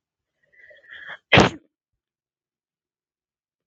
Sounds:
Sneeze